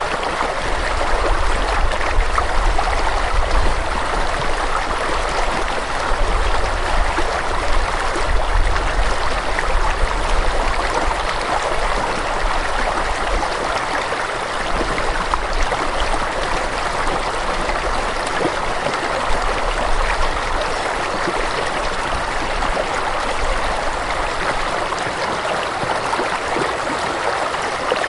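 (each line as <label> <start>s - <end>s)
A fast-flowing stream or river in nature. 0.0s - 28.1s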